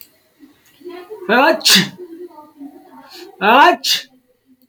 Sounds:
Sneeze